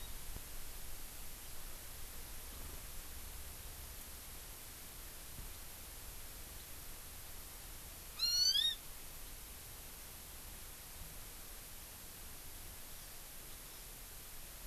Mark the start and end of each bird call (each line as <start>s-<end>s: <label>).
8.1s-8.8s: Hawaii Amakihi (Chlorodrepanis virens)
12.9s-13.2s: Hawaii Amakihi (Chlorodrepanis virens)
13.6s-13.9s: Hawaii Amakihi (Chlorodrepanis virens)